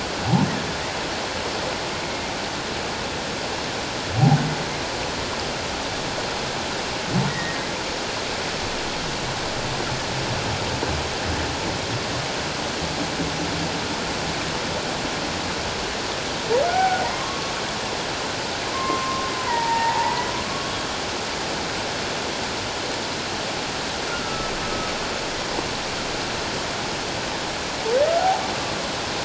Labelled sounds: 2.0	2.3	humpback whale, 2.1 to 2.3 kHz
7.3	7.6	humpback whale, 1.8 to 2.0 kHz
16.7	17.5	humpback whale, 1.0 to 1.6 kHz
18.7	20.7	humpback whale, 0.81 to 2.0 kHz
24.1	24.5	humpback whale, 1.3 to 1.5 kHz
28.2	28.4	humpback whale, 0.78 to 0.94 kHz

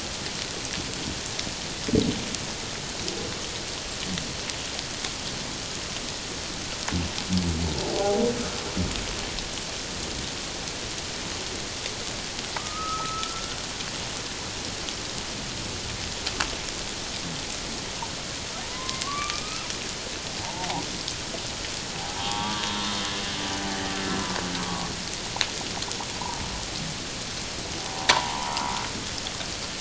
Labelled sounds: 7.9	8.2	humpback whale, 0.78 to 0.88 kHz
12.6	13.6	humpback whale, 0.84 to 1.5 kHz
18.6	19.7	humpback whale, 0.88 to 1.4 kHz
20.4	20.8	humpback whale, 0.78 to 1.0 kHz
22.2	22.6	humpback whale, 0.78 to 3.4 kHz
24.6	24.9	humpback whale, 0.97 to 1.2 kHz
27.9	28.7	humpback whale, 0.78 to 1.2 kHz

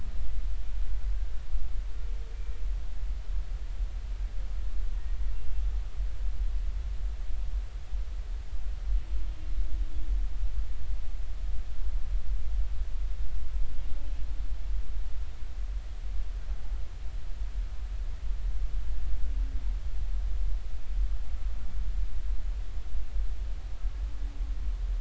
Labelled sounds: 2.3	2.6	humpback whale, 2.3 to 2.4 kHz

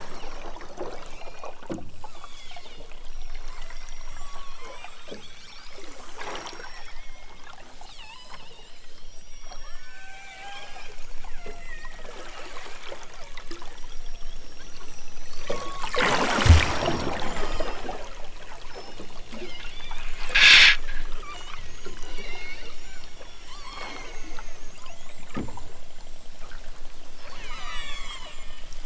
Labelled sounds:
0.0	0.7	killer whale, southern Alaska resident, 2.4 to 6.1 kHz
0.9	1.7	killer whale, southern Alaska resident, 1.8 to 6.2 kHz
2.1	7.6	killer whale, southern Alaska resident, 0.55 to 8.0 kHz
7.9	11.0	killer whale, southern Alaska resident, 0.32 to 6.1 kHz
11.3	12.4	killer whale, southern Alaska resident, 0.46 to 2.5 kHz
13.1	15.9	killer whale, southern Alaska resident, 0.28 to 6.3 kHz
17.3	17.8	killer whale, southern Alaska resident, 2.6 to 8.0 kHz
18.6	20.2	killer whale, southern Alaska resident, 1.7 to 6.6 kHz
21.2	25.3	killer whale, southern Alaska resident, 0.37 to 8.0 kHz
27.4	28.7	killer whale, southern Alaska resident, 0.42 to 8.0 kHz

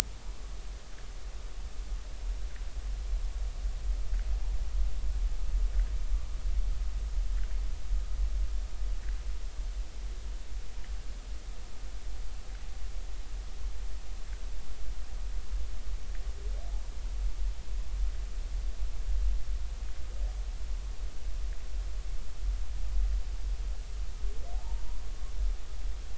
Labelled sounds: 24.5	24.8	humpback whale, 0.80 to 0.99 kHz

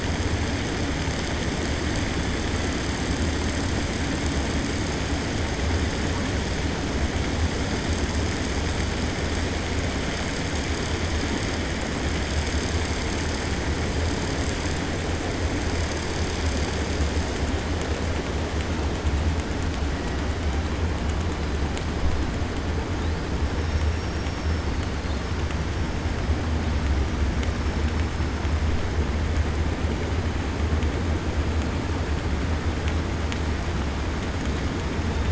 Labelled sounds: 23.6	24.7	killer whale, 4.6 to 5.6 kHz

